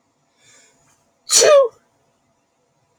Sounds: Sneeze